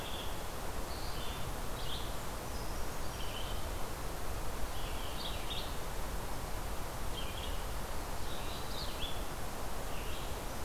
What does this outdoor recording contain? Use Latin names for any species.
Vireo olivaceus, Certhia americana